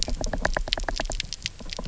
{"label": "biophony, knock", "recorder": "SoundTrap 300"}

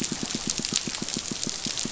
{"label": "biophony, pulse", "recorder": "SoundTrap 500"}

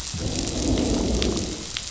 {"label": "biophony, growl", "recorder": "SoundTrap 500"}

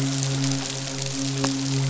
{"label": "biophony, midshipman", "recorder": "SoundTrap 500"}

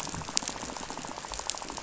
{"label": "biophony, rattle", "recorder": "SoundTrap 500"}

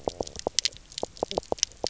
{"label": "biophony, knock croak", "recorder": "SoundTrap 300"}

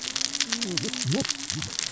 {"label": "biophony, cascading saw", "recorder": "SoundTrap 600 or HydroMoth"}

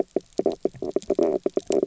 {"label": "biophony, knock croak", "recorder": "SoundTrap 300"}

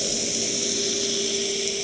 {"label": "anthrophony, boat engine", "recorder": "HydroMoth"}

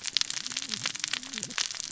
{"label": "biophony, cascading saw", "recorder": "SoundTrap 600 or HydroMoth"}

